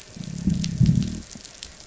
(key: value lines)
label: biophony, growl
recorder: SoundTrap 500